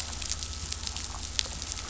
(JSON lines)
{"label": "anthrophony, boat engine", "recorder": "SoundTrap 500"}